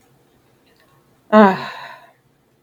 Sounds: Sigh